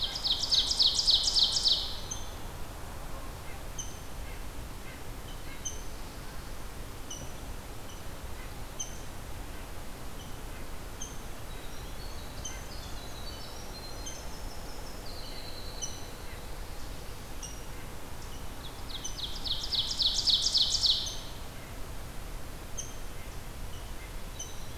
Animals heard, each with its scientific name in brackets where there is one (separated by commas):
Rose-breasted Grosbeak (Pheucticus ludovicianus), Ovenbird (Seiurus aurocapilla), Red-breasted Nuthatch (Sitta canadensis), Winter Wren (Troglodytes hiemalis)